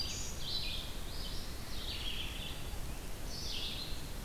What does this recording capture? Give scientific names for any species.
Setophaga virens, Vireo olivaceus